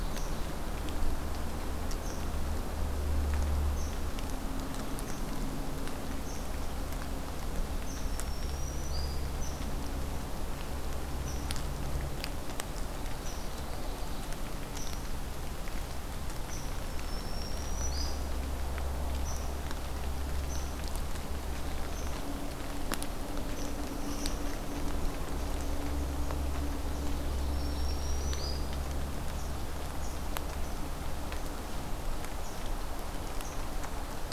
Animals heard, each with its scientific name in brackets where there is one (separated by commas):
Red Squirrel (Tamiasciurus hudsonicus), Ovenbird (Seiurus aurocapilla), Black-throated Green Warbler (Setophaga virens)